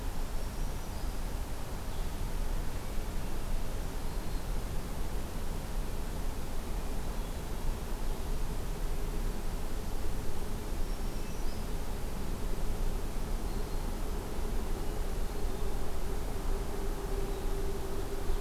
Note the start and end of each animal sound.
0.2s-1.6s: Black-throated Green Warbler (Setophaga virens)
3.8s-4.7s: Black-throated Green Warbler (Setophaga virens)
9.9s-11.8s: Black-throated Green Warbler (Setophaga virens)

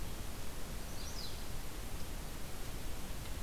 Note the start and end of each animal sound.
0.6s-1.5s: Chestnut-sided Warbler (Setophaga pensylvanica)

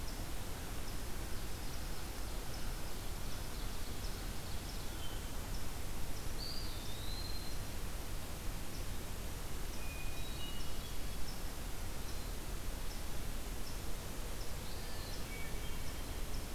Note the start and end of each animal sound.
6.2s-7.7s: Eastern Wood-Pewee (Contopus virens)
9.7s-11.2s: Hermit Thrush (Catharus guttatus)
14.6s-15.4s: Eastern Wood-Pewee (Contopus virens)
14.8s-16.2s: Hermit Thrush (Catharus guttatus)

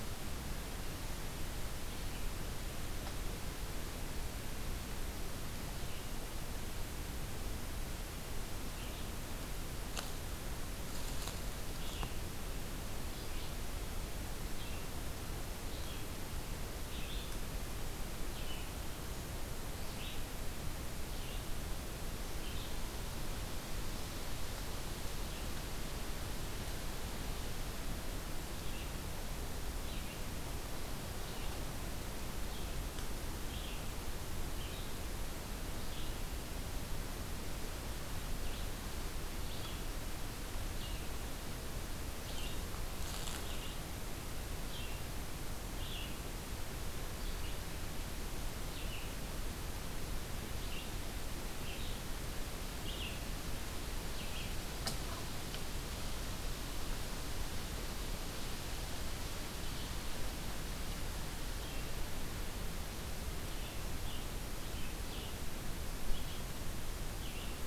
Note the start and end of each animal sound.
1.7s-9.2s: Red-eyed Vireo (Vireo olivaceus)
11.5s-54.7s: Red-eyed Vireo (Vireo olivaceus)
61.2s-67.7s: Red-eyed Vireo (Vireo olivaceus)

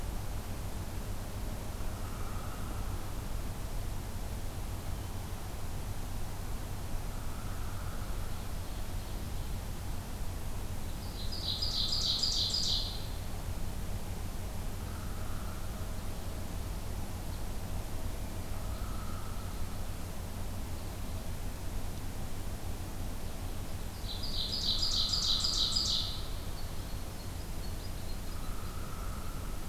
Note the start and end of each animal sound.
1.9s-3.2s: Hairy Woodpecker (Dryobates villosus)
7.0s-8.2s: Hairy Woodpecker (Dryobates villosus)
7.9s-9.7s: Ovenbird (Seiurus aurocapilla)
10.9s-13.2s: Ovenbird (Seiurus aurocapilla)
11.5s-12.5s: Hairy Woodpecker (Dryobates villosus)
14.9s-15.9s: Hairy Woodpecker (Dryobates villosus)
18.6s-19.7s: Hairy Woodpecker (Dryobates villosus)
23.6s-28.8s: Ovenbird (Seiurus aurocapilla)
24.7s-26.3s: Hairy Woodpecker (Dryobates villosus)
28.3s-29.7s: Hairy Woodpecker (Dryobates villosus)

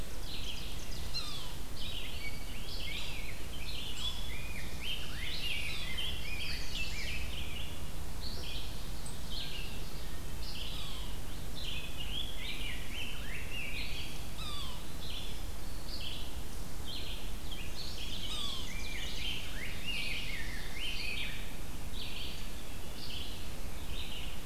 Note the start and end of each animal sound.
0.0s-1.4s: Ovenbird (Seiurus aurocapilla)
0.0s-24.5s: Red-eyed Vireo (Vireo olivaceus)
1.0s-1.6s: Yellow-bellied Sapsucker (Sphyrapicus varius)
1.9s-7.8s: Rose-breasted Grosbeak (Pheucticus ludovicianus)
10.6s-11.2s: Yellow-bellied Sapsucker (Sphyrapicus varius)
11.6s-14.0s: Rose-breasted Grosbeak (Pheucticus ludovicianus)
14.2s-14.8s: Yellow-bellied Sapsucker (Sphyrapicus varius)
17.5s-19.6s: Black-and-white Warbler (Mniotilta varia)
18.1s-18.8s: Yellow-bellied Sapsucker (Sphyrapicus varius)
18.3s-21.4s: Rose-breasted Grosbeak (Pheucticus ludovicianus)
21.9s-23.5s: Eastern Wood-Pewee (Contopus virens)

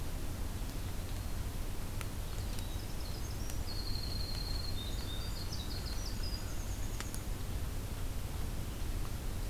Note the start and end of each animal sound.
2.1s-7.3s: Winter Wren (Troglodytes hiemalis)

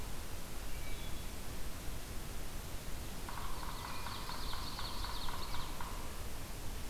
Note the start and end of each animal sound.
0.6s-1.3s: Wood Thrush (Hylocichla mustelina)
3.1s-6.2s: Yellow-bellied Sapsucker (Sphyrapicus varius)
3.5s-5.7s: Ovenbird (Seiurus aurocapilla)

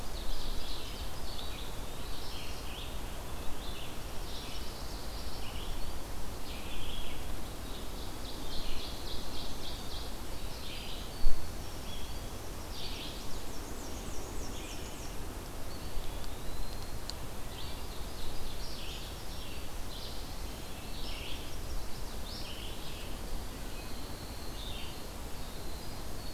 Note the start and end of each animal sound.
0.0s-1.2s: Ovenbird (Seiurus aurocapilla)
0.0s-6.1s: Red-eyed Vireo (Vireo olivaceus)
1.0s-2.3s: Eastern Wood-Pewee (Contopus virens)
3.5s-5.0s: Pine Warbler (Setophaga pinus)
6.4s-26.3s: Red-eyed Vireo (Vireo olivaceus)
7.4s-10.2s: Ovenbird (Seiurus aurocapilla)
10.4s-13.3s: Winter Wren (Troglodytes hiemalis)
12.9s-15.3s: Black-and-white Warbler (Mniotilta varia)
15.6s-17.2s: Eastern Wood-Pewee (Contopus virens)
17.4s-19.3s: Ovenbird (Seiurus aurocapilla)
21.2s-22.3s: Chestnut-sided Warbler (Setophaga pensylvanica)
22.6s-26.3s: Winter Wren (Troglodytes hiemalis)

